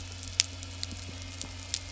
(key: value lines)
label: anthrophony, boat engine
recorder: SoundTrap 300